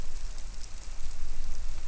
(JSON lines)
{"label": "biophony", "recorder": "SoundTrap 300"}